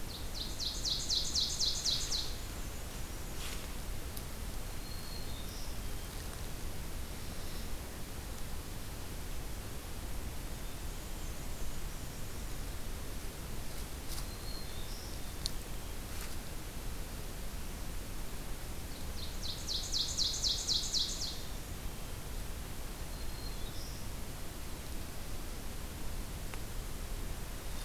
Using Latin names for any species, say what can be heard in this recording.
Seiurus aurocapilla, Mniotilta varia, Setophaga virens